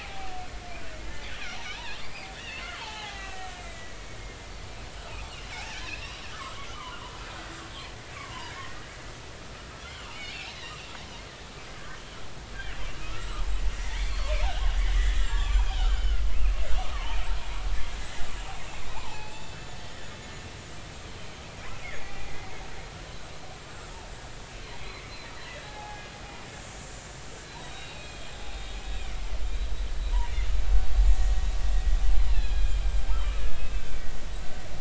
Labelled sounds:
0.0	0.3	killer whale, Bigg's (transient), 0.80 to 0.83 kHz
1.0	4.0	killer whale, Bigg's (transient), 0.80 to 4.9 kHz
5.7	6.6	killer whale, Bigg's (transient), 0.96 to 1.9 kHz
7.7	8.0	killer whale, Bigg's (transient), 3.0 to 3.6 kHz
8.5	8.9	killer whale, Bigg's (transient), 1.8 to 2.2 kHz
9.9	10.9	killer whale, Bigg's (transient), 2.1 to 4.5 kHz
13.0	14.2	killer whale, Bigg's (transient), 1.1 to 2.4 kHz
15.0	16.2	killer whale, Bigg's (transient), 1.1 to 7.6 kHz
16.8	17.2	killer whale, Bigg's (transient), 0.83 to 1.3 kHz
18.0	20.1	killer whale, Bigg's (transient), 0.80 to 7.2 kHz
22.0	22.3	killer whale, Bigg's (transient), 2.2 to 2.5 kHz
24.8	26.1	killer whale, Bigg's (transient), 0.80 to 4.2 kHz
26.8	29.2	killer whale, Bigg's (transient), 2.1 to 7.3 kHz
32.2	33.8	killer whale, Bigg's (transient), 1.1 to 7.8 kHz

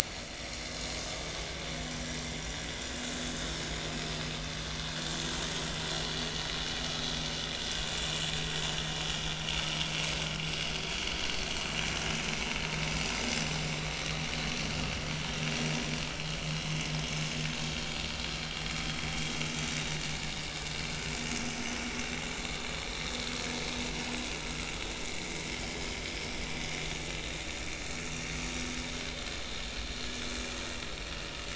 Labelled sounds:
7.8	8.1	vessel noise, 6.9 to 7.2 kHz
25.5	25.7	vessel noise, 3.0 to 3.2 kHz

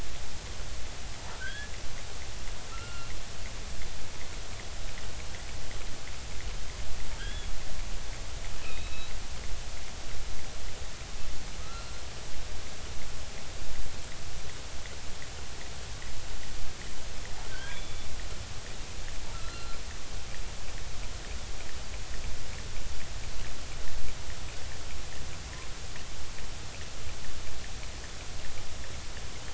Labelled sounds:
1.3	1.7	killer whale, offshore, 1.3 to 3.5 kHz
2.7	3.1	killer whale, offshore, 1.2 to 3.0 kHz
7.2	7.5	killer whale, offshore, 1.2 to 3.5 kHz
8.6	9.1	killer whale, offshore, 2.4 to 2.7 kHz
11.6	11.9	killer whale, offshore, 1.1 to 2.8 kHz
17.5	18.1	killer whale, offshore, 1.4 to 3.5 kHz
19.3	19.8	killer whale, offshore, 1.2 to 4.2 kHz

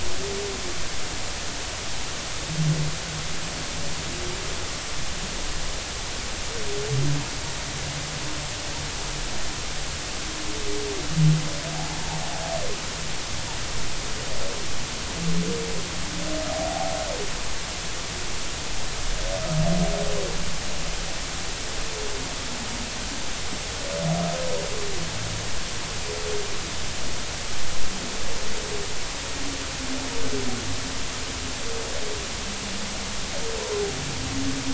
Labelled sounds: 12.7	13.0	humpback whale, 0.80 to 0.96 kHz
16.7	16.9	humpback whale, 0.80 to 0.90 kHz

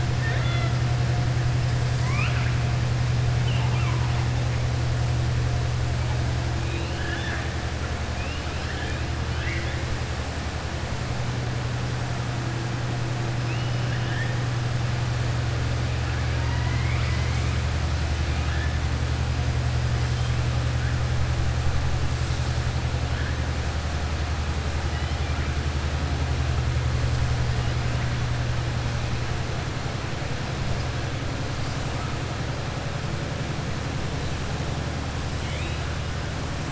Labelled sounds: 0.1	0.7	killer whale, southern resident, 0.67 to 4.2 kHz
1.9	2.5	killer whale, southern resident, 1.0 to 7.8 kHz
6.6	7.5	killer whale, southern resident, 1.2 to 4.2 kHz
8.1	9.0	killer whale, southern resident, 1.7 to 4.1 kHz
9.2	9.8	killer whale, southern resident, 1.6 to 3.6 kHz
18.3	18.7	killer whale, southern resident, 1.3 to 2.9 kHz
35.4	35.8	killer whale, southern resident, 2.1 to 3.9 kHz

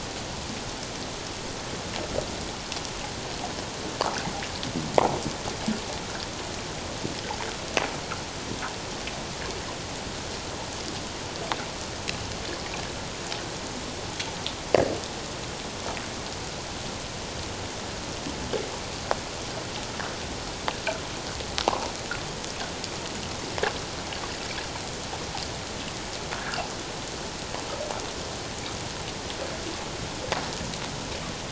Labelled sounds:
26.3	26.6	fish, 1.4 to 1.8 kHz

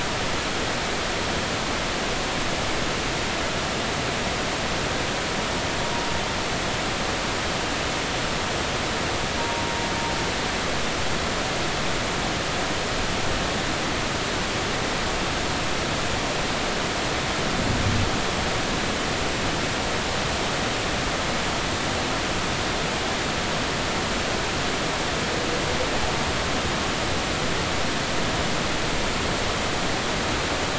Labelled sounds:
9.4	9.6	humpback whale, 0.90 to 0.96 kHz

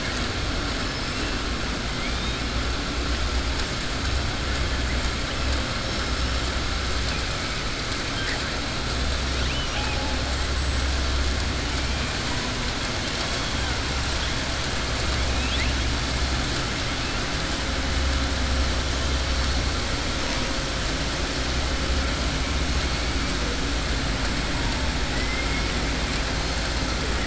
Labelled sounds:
1.9	2.4	killer whale, southern resident, 2.1 to 3.8 kHz
9.4	10.1	killer whale, southern resident, 0.53 to 3.4 kHz
25.1	25.8	killer whale, southern resident, 1.9 to 3.1 kHz

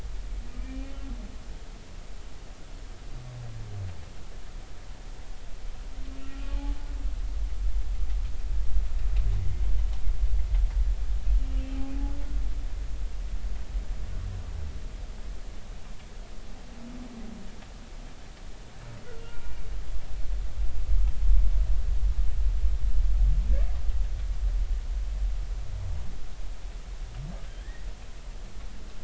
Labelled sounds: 0.6	0.9	humpback whale, 2.3 to 2.5 kHz
6.2	6.7	humpback whale, 0.80 to 1.4 kHz
19.2	19.7	humpback whale, 1.3 to 2.4 kHz

